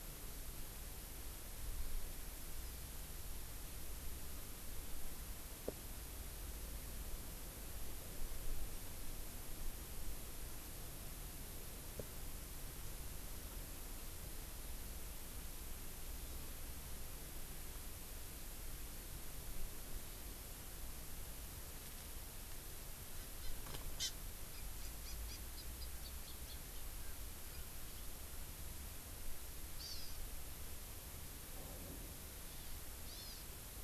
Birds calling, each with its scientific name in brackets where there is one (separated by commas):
Hawaii Amakihi (Chlorodrepanis virens)